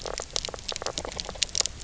{"label": "biophony, knock croak", "recorder": "SoundTrap 300"}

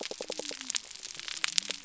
{"label": "biophony", "recorder": "SoundTrap 300"}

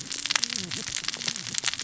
{"label": "biophony, cascading saw", "recorder": "SoundTrap 600 or HydroMoth"}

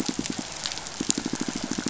{"label": "biophony, pulse", "recorder": "SoundTrap 500"}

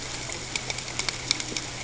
{"label": "ambient", "recorder": "HydroMoth"}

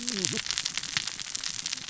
{"label": "biophony, cascading saw", "recorder": "SoundTrap 600 or HydroMoth"}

